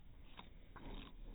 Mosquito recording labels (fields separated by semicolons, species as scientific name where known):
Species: no mosquito; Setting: cup